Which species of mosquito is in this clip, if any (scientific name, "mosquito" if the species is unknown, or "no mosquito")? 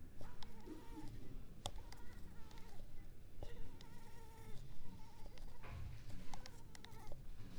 Culex pipiens complex